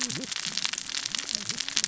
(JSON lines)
{"label": "biophony, cascading saw", "recorder": "SoundTrap 600 or HydroMoth"}